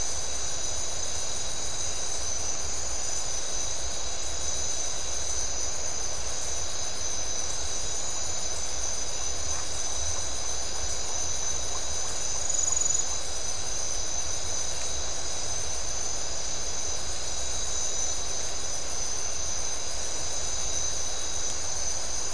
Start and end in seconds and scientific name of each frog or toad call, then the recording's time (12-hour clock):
9.5	9.6	Phyllomedusa distincta
1:15am